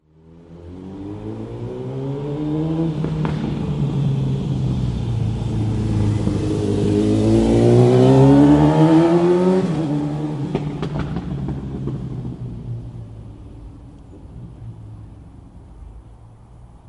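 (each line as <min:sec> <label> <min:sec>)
0:00.5 A manual transmission car with a modified exhaust approaches and then leaves. 0:13.0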